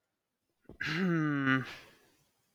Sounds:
Sigh